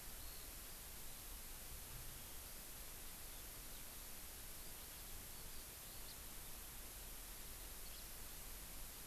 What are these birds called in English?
Eurasian Skylark